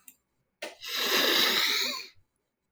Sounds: Sniff